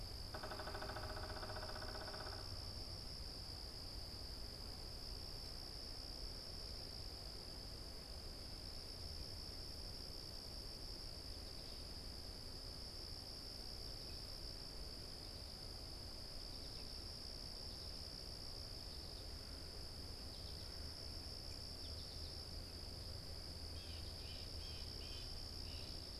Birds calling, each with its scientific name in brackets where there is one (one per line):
Blue Jay (Cyanocitta cristata)
unidentified bird